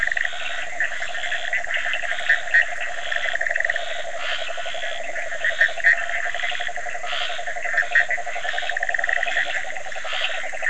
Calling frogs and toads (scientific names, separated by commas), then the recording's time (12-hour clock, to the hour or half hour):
Boana bischoffi, Rhinella icterica, Scinax perereca, Leptodactylus latrans
11:30pm